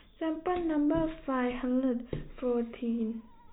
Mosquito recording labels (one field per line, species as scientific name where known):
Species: no mosquito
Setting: cup